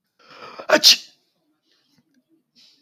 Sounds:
Sneeze